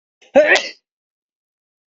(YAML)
expert_labels:
- quality: no cough present
  cough_type: unknown
  dyspnea: false
  wheezing: false
  stridor: false
  choking: false
  congestion: false
  nothing: true
  diagnosis: healthy cough
  severity: pseudocough/healthy cough
age: 27
gender: male
respiratory_condition: true
fever_muscle_pain: true
status: symptomatic